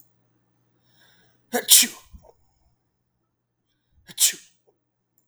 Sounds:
Sneeze